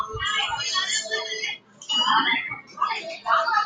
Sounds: Sneeze